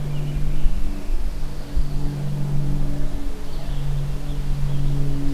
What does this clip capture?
forest ambience